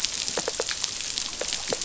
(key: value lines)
label: biophony
recorder: SoundTrap 500